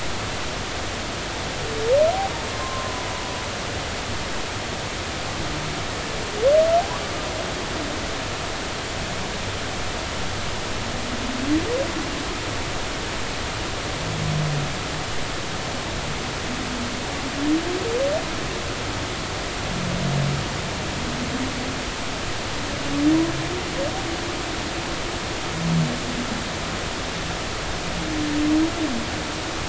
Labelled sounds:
2.5	3.1	humpback whale, 0.96 to 1.1 kHz

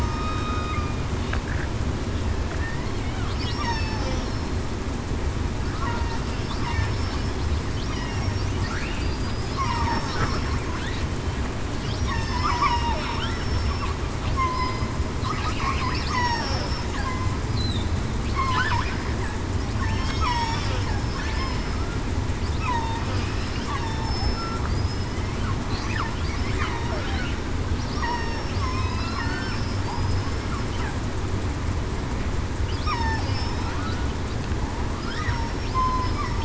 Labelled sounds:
0.0	0.7	killer whale, southern resident, 1.2 to 3.8 kHz
2.6	2.9	killer whale, southern resident, 1.7 to 2.2 kHz
3.4	4.6	killer whale, southern resident, 2.6 to 5.6 kHz
9.0	10.2	killer whale, southern resident, 4.7 to 5.6 kHz
12.3	12.7	killer whale, southern resident, 5.1 to 5.3 kHz
13.4	13.8	killer whale, southern resident, 5.3 to 5.4 kHz
14.3	14.8	killer whale, southern resident, 0.98 to 1.1 kHz
16.1	16.8	killer whale, southern resident, 5.3 to 5.6 kHz
19.9	20.7	killer whale, southern resident, 0.89 to 5.6 kHz
22.7	23.0	killer whale, southern resident, 0.87 to 1.0 kHz
23.8	24.1	killer whale, southern resident, 0.87 to 0.94 kHz
24.7	25.1	killer whale, southern resident, 4.9 to 5.2 kHz
27.9	29.5	killer whale, southern resident, 0.98 to 5.6 kHz
29.9	30.4	killer whale, southern resident, 4.9 to 5.3 kHz
32.9	33.2	killer whale, southern resident, 0.82 to 1.3 kHz
35.7	36.1	killer whale, southern resident, 0.98 to 1.1 kHz

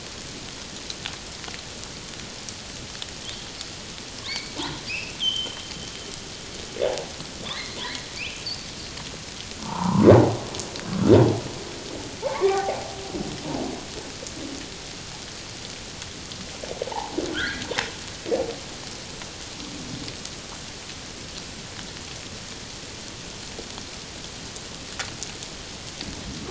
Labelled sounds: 4.3	5.6	humpback whale, 2.0 to 4.7 kHz
6.9	7.8	humpback whale, 0.78 to 4.3 kHz
8.2	8.5	humpback whale, 2.2 to 3.6 kHz
9.6	10.1	humpback whale, 0.78 to 1.4 kHz
12.2	12.9	humpback whale, 0.78 to 2.4 kHz
16.9	17.7	humpback whale, 0.78 to 2.2 kHz

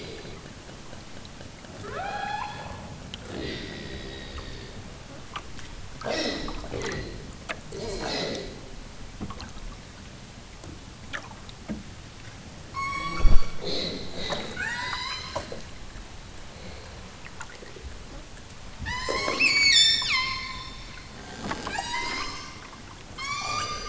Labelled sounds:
1.9	2.8	killer whale, southern Alaska resident, 0.46 to 6.0 kHz
12.7	13.5	killer whale, southern Alaska resident, 0.73 to 8.0 kHz
14.5	15.3	killer whale, southern Alaska resident, 0.55 to 8.0 kHz
18.8	20.6	killer whale, southern Alaska resident, 0.64 to 8.0 kHz
21.7	22.5	killer whale, southern Alaska resident, 0.78 to 8.0 kHz
23.1	23.8	killer whale, southern Alaska resident, 0.73 to 8.0 kHz

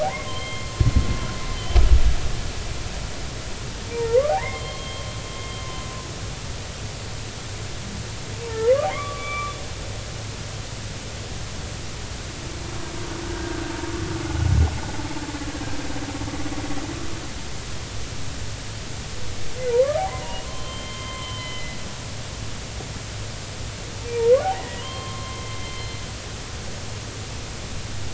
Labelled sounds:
0.0	0.7	humpback whale, 0.80 to 3.2 kHz
3.9	5.1	humpback whale, 0.80 to 4.3 kHz
8.4	9.5	humpback whale, 0.86 to 3.6 kHz
13.2	13.7	humpback whale, 1.4 to 1.7 kHz
19.7	21.8	humpback whale, 0.80 to 3.2 kHz
24.5	26.0	humpback whale, 0.93 to 4.2 kHz
26.6	26.9	humpback whale, 3.1 to 3.2 kHz

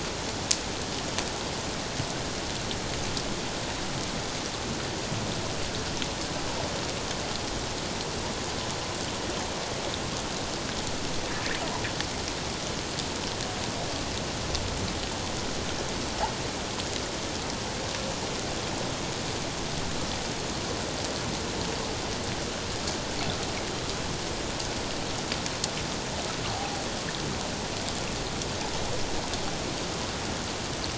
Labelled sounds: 26.5	26.8	humpback whale, 0.78 to 0.84 kHz

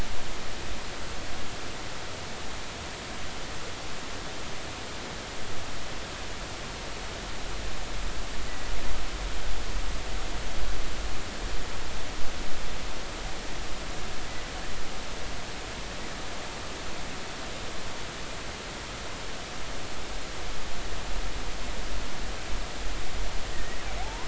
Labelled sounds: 23.5	24.2	killer whale, offshore, 0.80 to 2.0 kHz

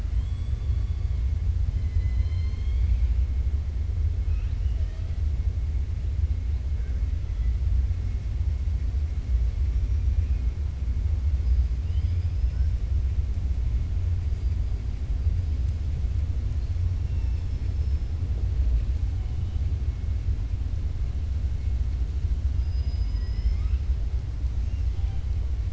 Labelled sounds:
0.1	1.1	killer whale, 3.0 to 4.5 kHz
1.8	3.1	killer whale, 1.1 to 5.2 kHz
4.2	5.1	killer whale, 0.62 to 4.5 kHz
22.5	23.8	killer whale, 0.99 to 5.4 kHz

